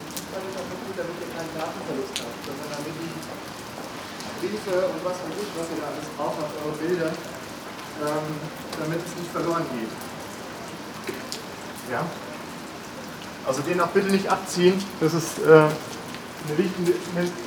Is anyone yelling?
no